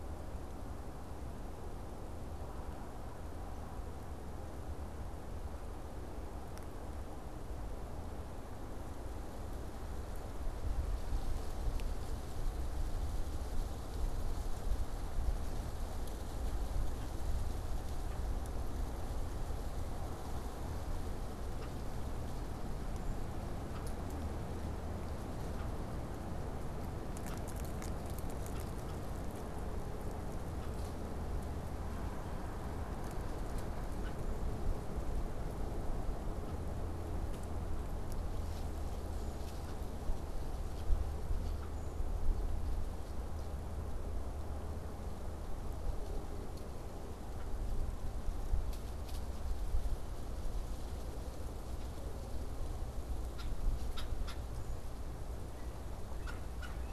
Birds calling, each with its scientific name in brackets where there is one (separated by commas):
Red-bellied Woodpecker (Melanerpes carolinus)